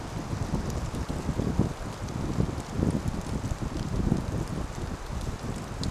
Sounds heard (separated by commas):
rain